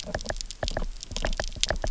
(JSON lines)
{"label": "biophony, knock", "recorder": "SoundTrap 300"}